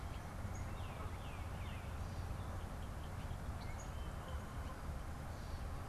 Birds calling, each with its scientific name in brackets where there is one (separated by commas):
Tufted Titmouse (Baeolophus bicolor), Canada Goose (Branta canadensis)